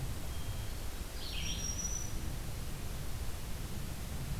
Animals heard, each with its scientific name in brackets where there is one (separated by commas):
Red-eyed Vireo (Vireo olivaceus), Black-throated Green Warbler (Setophaga virens)